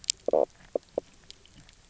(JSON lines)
{"label": "biophony, knock croak", "recorder": "SoundTrap 300"}